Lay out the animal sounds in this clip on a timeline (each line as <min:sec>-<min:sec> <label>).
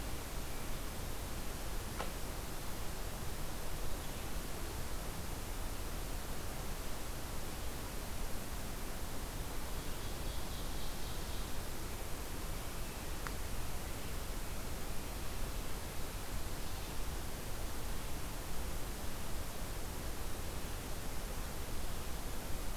0:09.2-0:11.7 Ovenbird (Seiurus aurocapilla)